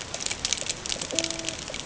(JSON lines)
{"label": "ambient", "recorder": "HydroMoth"}